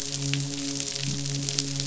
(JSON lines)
{"label": "biophony, midshipman", "recorder": "SoundTrap 500"}